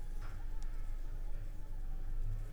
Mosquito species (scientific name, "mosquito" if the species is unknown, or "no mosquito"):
Anopheles arabiensis